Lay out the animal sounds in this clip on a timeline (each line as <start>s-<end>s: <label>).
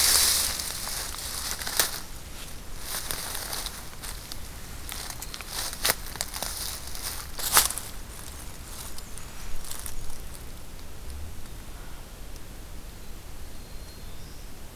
8.2s-10.3s: Black-and-white Warbler (Mniotilta varia)
12.8s-14.8s: Black-throated Green Warbler (Setophaga virens)